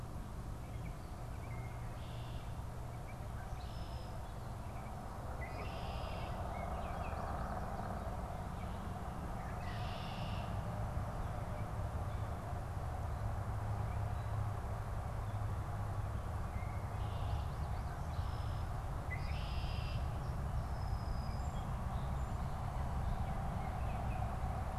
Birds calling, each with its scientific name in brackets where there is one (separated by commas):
Red-winged Blackbird (Agelaius phoeniceus), Song Sparrow (Melospiza melodia), Baltimore Oriole (Icterus galbula)